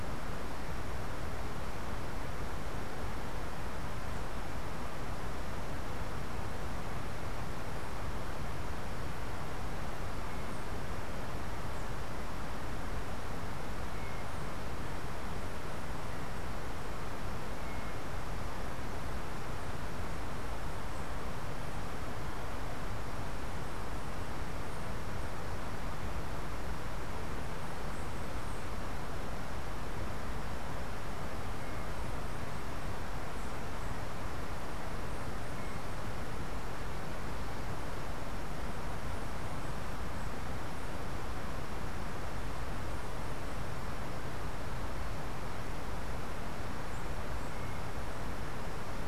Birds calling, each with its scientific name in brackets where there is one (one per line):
Yellow-backed Oriole (Icterus chrysater)